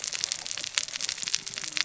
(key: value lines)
label: biophony, cascading saw
recorder: SoundTrap 600 or HydroMoth